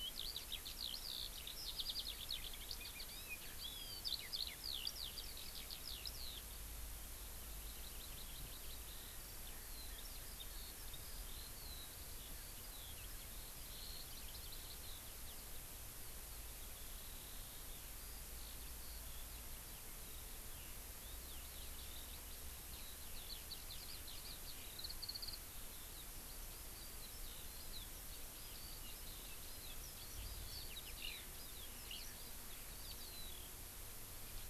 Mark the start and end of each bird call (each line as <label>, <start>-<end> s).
Eurasian Skylark (Alauda arvensis), 0.0-6.6 s
Hawaii Amakihi (Chlorodrepanis virens), 7.5-8.8 s
Eurasian Skylark (Alauda arvensis), 8.9-15.5 s
Eurasian Skylark (Alauda arvensis), 15.9-33.4 s